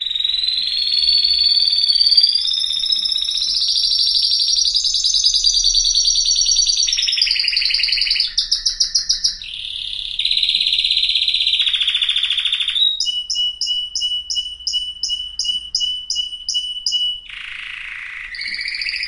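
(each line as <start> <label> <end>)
0.0 A canary sings in various slow and rapid patterns. 19.1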